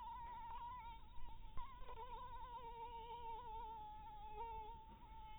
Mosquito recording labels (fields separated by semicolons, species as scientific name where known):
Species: Anopheles maculatus; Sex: female; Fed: blood-fed; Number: one; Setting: cup